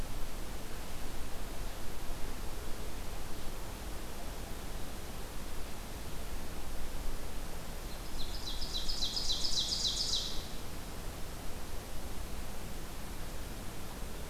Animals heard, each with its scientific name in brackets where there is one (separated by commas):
Ovenbird (Seiurus aurocapilla)